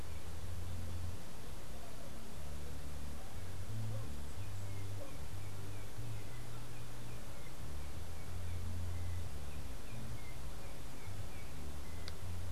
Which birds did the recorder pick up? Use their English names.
Yellow-backed Oriole